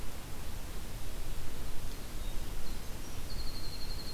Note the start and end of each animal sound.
[2.20, 4.13] Winter Wren (Troglodytes hiemalis)

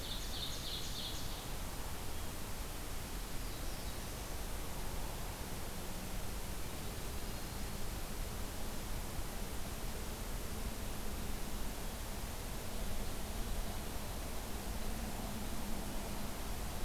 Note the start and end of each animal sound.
[0.00, 1.52] Ovenbird (Seiurus aurocapilla)
[3.19, 4.44] Black-throated Blue Warbler (Setophaga caerulescens)
[6.74, 7.85] Yellow-rumped Warbler (Setophaga coronata)

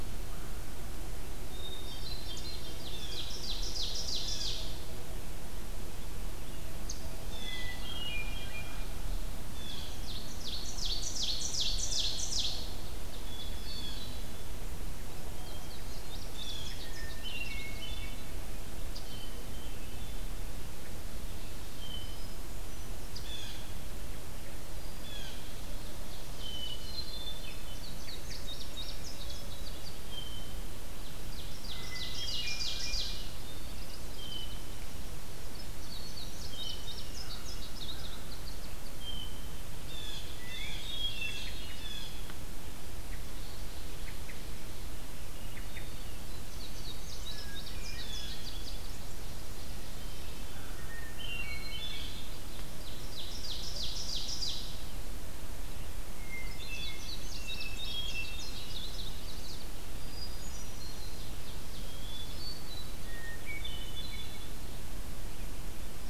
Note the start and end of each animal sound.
[1.45, 3.14] Hermit Thrush (Catharus guttatus)
[2.16, 4.92] Ovenbird (Seiurus aurocapilla)
[2.83, 4.63] Blue Jay (Cyanocitta cristata)
[7.04, 7.83] Blue Jay (Cyanocitta cristata)
[7.07, 8.67] Hermit Thrush (Catharus guttatus)
[9.46, 10.07] Blue Jay (Cyanocitta cristata)
[9.48, 12.98] Ovenbird (Seiurus aurocapilla)
[13.10, 14.61] Hermit Thrush (Catharus guttatus)
[13.44, 14.25] Blue Jay (Cyanocitta cristata)
[15.34, 17.80] Indigo Bunting (Passerina cyanea)
[16.12, 16.84] Blue Jay (Cyanocitta cristata)
[16.64, 18.46] Hermit Thrush (Catharus guttatus)
[18.85, 20.32] Hermit Thrush (Catharus guttatus)
[21.66, 22.98] Hermit Thrush (Catharus guttatus)
[22.98, 23.65] Blue Jay (Cyanocitta cristata)
[24.86, 25.62] Blue Jay (Cyanocitta cristata)
[24.92, 27.15] Ovenbird (Seiurus aurocapilla)
[26.46, 28.02] Hermit Thrush (Catharus guttatus)
[27.61, 30.05] Indigo Bunting (Passerina cyanea)
[29.89, 30.78] Hermit Thrush (Catharus guttatus)
[30.68, 33.34] Ovenbird (Seiurus aurocapilla)
[31.66, 33.50] Hermit Thrush (Catharus guttatus)
[34.17, 34.78] Hermit Thrush (Catharus guttatus)
[35.66, 38.34] Indigo Bunting (Passerina cyanea)
[38.82, 39.79] Hermit Thrush (Catharus guttatus)
[39.66, 42.43] Blue Jay (Cyanocitta cristata)
[45.30, 46.58] Hermit Thrush (Catharus guttatus)
[46.32, 49.19] Indigo Bunting (Passerina cyanea)
[47.08, 49.15] Hermit Thrush (Catharus guttatus)
[50.45, 51.60] American Crow (Corvus brachyrhynchos)
[50.49, 52.51] Hermit Thrush (Catharus guttatus)
[52.55, 54.90] Ovenbird (Seiurus aurocapilla)
[56.03, 58.84] Hermit Thrush (Catharus guttatus)
[56.49, 59.72] Indigo Bunting (Passerina cyanea)
[60.08, 64.62] Hermit Thrush (Catharus guttatus)

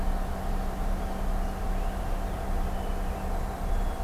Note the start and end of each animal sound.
[0.00, 3.33] Purple Finch (Haemorhous purpureus)
[3.23, 4.03] Black-capped Chickadee (Poecile atricapillus)

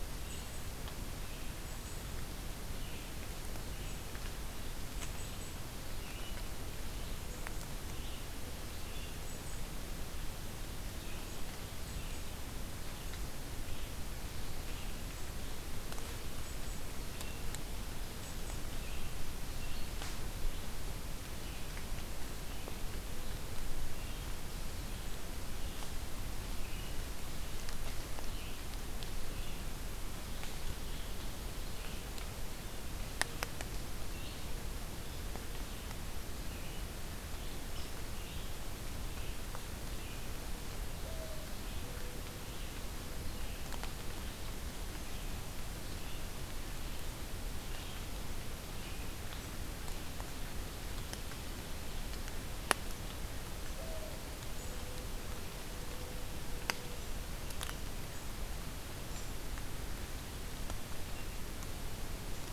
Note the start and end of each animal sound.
[0.00, 18.62] American Robin (Turdus migratorius)
[0.00, 41.92] Red-eyed Vireo (Vireo olivaceus)
[41.01, 43.49] Mourning Dove (Zenaida macroura)
[42.39, 49.09] Red-eyed Vireo (Vireo olivaceus)
[49.33, 62.53] American Robin (Turdus migratorius)
[53.12, 57.18] Mourning Dove (Zenaida macroura)

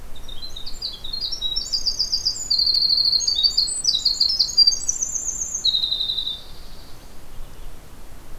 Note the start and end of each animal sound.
[0.00, 7.15] Winter Wren (Troglodytes hiemalis)
[5.69, 7.10] Dark-eyed Junco (Junco hyemalis)

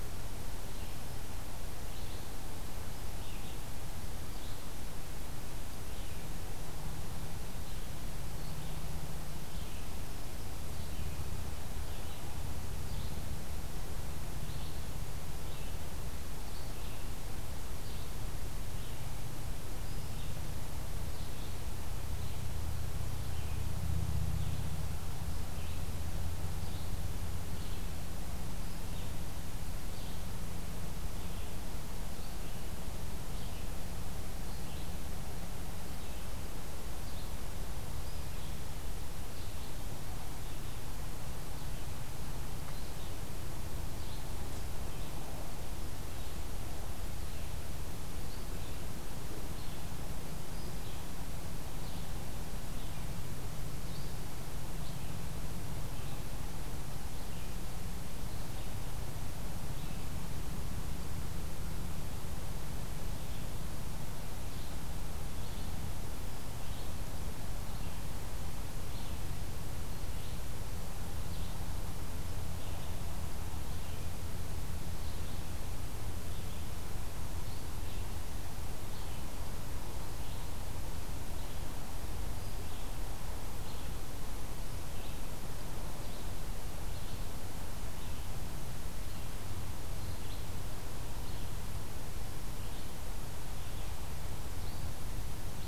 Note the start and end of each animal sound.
[0.63, 58.99] Red-eyed Vireo (Vireo olivaceus)
[0.78, 1.25] Black-throated Green Warbler (Setophaga virens)
[59.61, 95.67] Red-eyed Vireo (Vireo olivaceus)

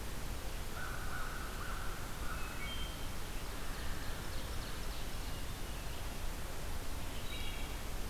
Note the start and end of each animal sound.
[0.73, 2.78] American Crow (Corvus brachyrhynchos)
[2.23, 3.14] Wood Thrush (Hylocichla mustelina)
[3.41, 5.19] Ovenbird (Seiurus aurocapilla)
[3.51, 4.98] American Crow (Corvus brachyrhynchos)
[6.88, 8.09] Wood Thrush (Hylocichla mustelina)

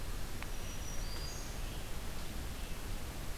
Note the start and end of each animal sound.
[0.35, 1.63] Black-throated Green Warbler (Setophaga virens)
[0.40, 3.38] Red-eyed Vireo (Vireo olivaceus)

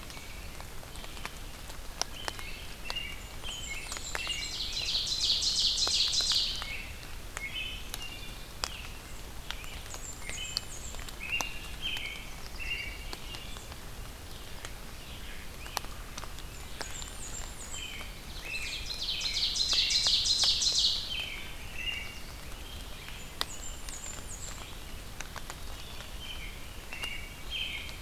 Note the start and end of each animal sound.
[0.00, 0.65] American Robin (Turdus migratorius)
[0.00, 28.01] Red-eyed Vireo (Vireo olivaceus)
[2.03, 5.02] American Robin (Turdus migratorius)
[3.09, 4.60] Blackburnian Warbler (Setophaga fusca)
[3.79, 6.65] Ovenbird (Seiurus aurocapilla)
[6.37, 9.78] American Robin (Turdus migratorius)
[9.76, 11.03] Blackburnian Warbler (Setophaga fusca)
[10.15, 13.68] American Robin (Turdus migratorius)
[14.36, 15.59] Mallard (Anas platyrhynchos)
[16.42, 18.04] Blackburnian Warbler (Setophaga fusca)
[17.66, 20.18] American Robin (Turdus migratorius)
[18.34, 21.19] Ovenbird (Seiurus aurocapilla)
[20.99, 23.29] American Robin (Turdus migratorius)
[22.34, 23.85] Great Crested Flycatcher (Myiarchus crinitus)
[23.03, 24.73] Blackburnian Warbler (Setophaga fusca)
[26.08, 28.01] American Robin (Turdus migratorius)

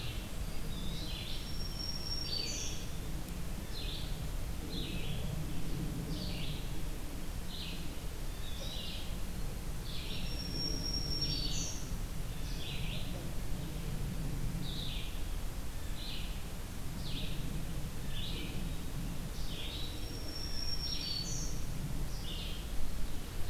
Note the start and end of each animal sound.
[0.00, 1.41] Red-breasted Nuthatch (Sitta canadensis)
[0.00, 23.50] Red-eyed Vireo (Vireo olivaceus)
[1.31, 3.14] Black-throated Green Warbler (Setophaga virens)
[8.24, 8.97] Eastern Wood-Pewee (Contopus virens)
[10.14, 12.16] Black-throated Green Warbler (Setophaga virens)
[19.31, 20.04] Eastern Wood-Pewee (Contopus virens)
[19.54, 21.75] Black-throated Green Warbler (Setophaga virens)

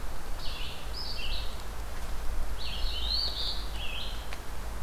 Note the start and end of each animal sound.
[0.00, 1.75] Red-eyed Vireo (Vireo olivaceus)
[2.43, 4.82] Red-eyed Vireo (Vireo olivaceus)
[2.91, 3.71] Eastern Phoebe (Sayornis phoebe)

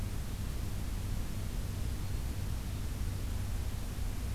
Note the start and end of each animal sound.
[1.55, 2.50] Black-throated Green Warbler (Setophaga virens)

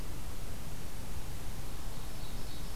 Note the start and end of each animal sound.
[1.84, 2.75] Ovenbird (Seiurus aurocapilla)

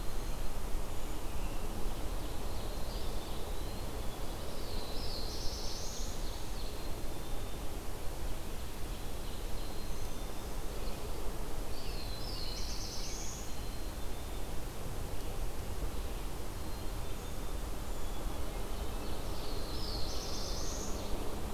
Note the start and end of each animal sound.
[1.76, 3.38] Ovenbird (Seiurus aurocapilla)
[2.49, 4.00] Eastern Wood-Pewee (Contopus virens)
[4.42, 6.27] Black-throated Blue Warbler (Setophaga caerulescens)
[4.88, 6.82] Ovenbird (Seiurus aurocapilla)
[6.42, 7.66] Black-capped Chickadee (Poecile atricapillus)
[8.15, 9.96] Ovenbird (Seiurus aurocapilla)
[9.12, 10.57] Black-capped Chickadee (Poecile atricapillus)
[11.69, 13.85] Black-throated Blue Warbler (Setophaga caerulescens)
[13.33, 14.59] Black-capped Chickadee (Poecile atricapillus)
[16.52, 17.85] Black-capped Chickadee (Poecile atricapillus)
[18.38, 21.44] Ovenbird (Seiurus aurocapilla)
[19.18, 21.12] Black-throated Blue Warbler (Setophaga caerulescens)

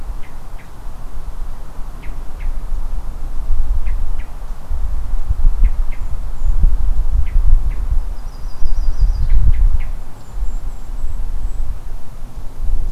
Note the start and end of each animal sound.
[0.00, 9.94] Hermit Thrush (Catharus guttatus)
[7.78, 9.45] Yellow-rumped Warbler (Setophaga coronata)
[9.85, 11.70] Golden-crowned Kinglet (Regulus satrapa)

